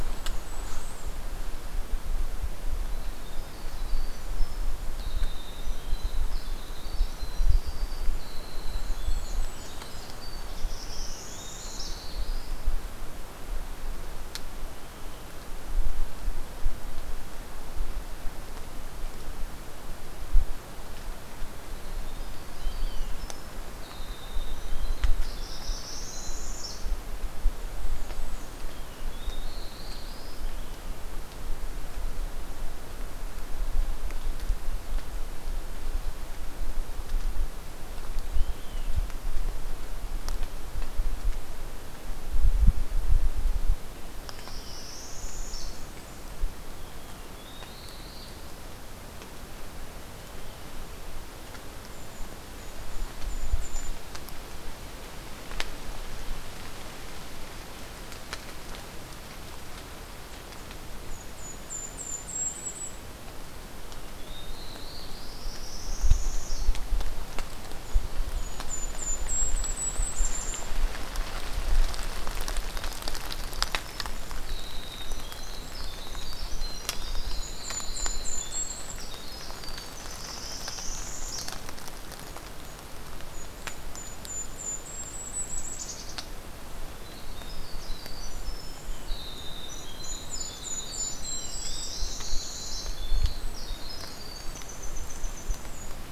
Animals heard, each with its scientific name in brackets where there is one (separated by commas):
Golden-crowned Kinglet (Regulus satrapa), Winter Wren (Troglodytes hiemalis), Olive-sided Flycatcher (Contopus cooperi), Blackburnian Warbler (Setophaga fusca), Northern Parula (Setophaga americana), Black-throated Blue Warbler (Setophaga caerulescens)